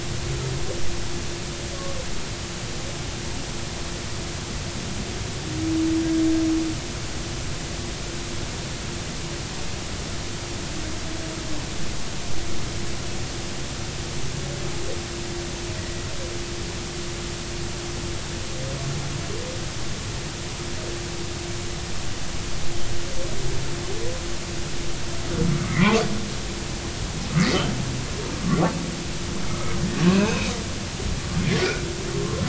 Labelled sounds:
1.7	2.0	humpback whale, 1.1 to 1.2 kHz
15.8	16.0	humpback whale, 1.9 to 2.0 kHz
25.7	26.0	humpback whale, 0.80 to 2.8 kHz
30.1	30.5	humpback whale, 2.3 to 2.7 kHz
31.6	32.4	humpback whale, 0.99 to 1.5 kHz

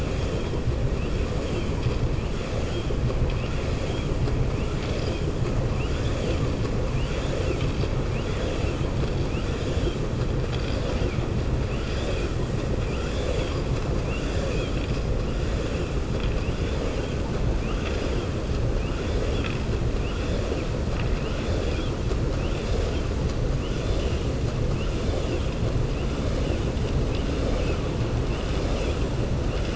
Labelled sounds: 20.8	21.9	vessel noise, 0.99 to 5.3 kHz

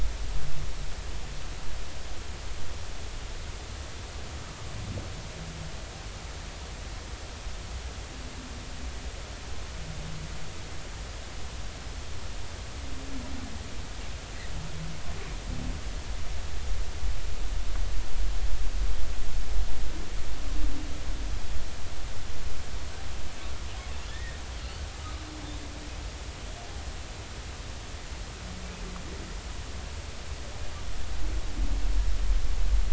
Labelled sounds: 24.1	24.4	humpback whale, 1.7 to 2.0 kHz

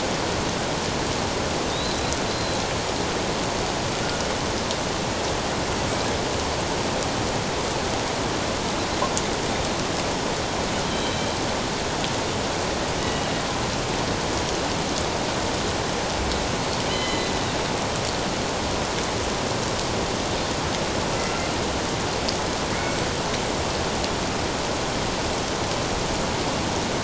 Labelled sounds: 1.7	2.6	killer whale, Bigg's (transient), 3.6 to 4.2 kHz
10.9	11.3	killer whale, Bigg's (transient), 3.0 to 3.2 kHz
13.0	13.4	killer whale, Bigg's (transient), 2.8 to 3.0 kHz
16.9	17.3	killer whale, Bigg's (transient), 1.9 to 3.1 kHz

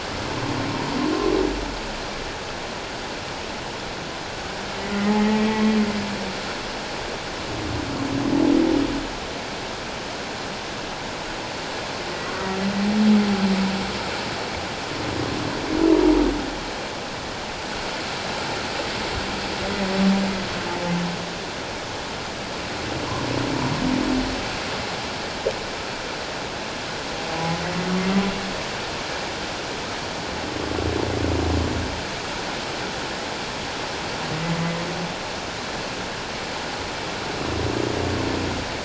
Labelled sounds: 5.2	5.5	humpback whale, 1.8 to 2.0 kHz
27.6	27.9	humpback whale, 1.9 to 2.0 kHz

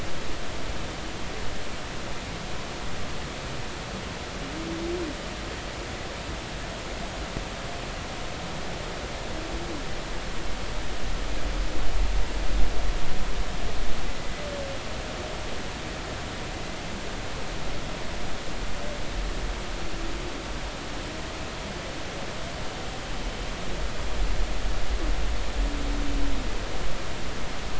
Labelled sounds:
14.1	14.4	humpback whale, 1.95 to 2.05 kHz

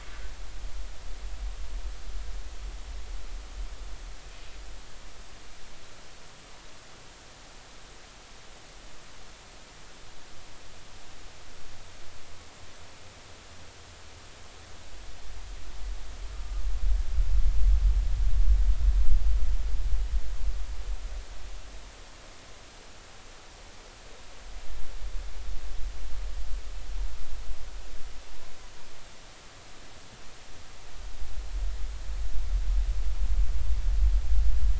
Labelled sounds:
16.3	16.6	humpback whale, 1.18 to 1.25 kHz

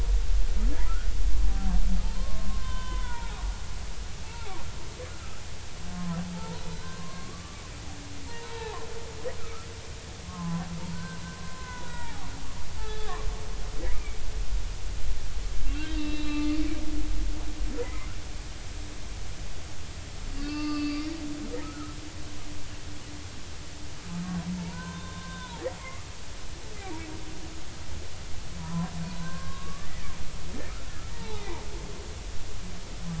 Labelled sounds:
2.2	3.4	humpback whale, 0.80 to 3.7 kHz
4.2	4.6	humpback whale, 0.80 to 0.99 kHz
6.3	7.6	humpback whale, 0.83 to 1.6 kHz
8.3	9.7	humpback whale, 0.80 to 4.0 kHz
10.2	12.3	humpback whale, 0.80 to 2.0 kHz
12.8	13.3	humpback whale, 0.99 to 1.8 kHz
13.9	14.2	humpback whale, 2.2 to 2.5 kHz
15.7	16.5	humpback whale, 1.4 to 4.0 kHz
17.8	18.1	humpback whale, 0.93 to 2.2 kHz
20.4	22.0	humpback whale, 1.1 to 4.8 kHz
24.6	26.1	humpback whale, 0.86 to 2.2 kHz
28.6	28.9	humpback whale, 0.93 to 1.1 kHz
29.2	30.2	humpback whale, 0.99 to 2.0 kHz
31.1	31.6	humpback whale, 0.80 to 4.2 kHz

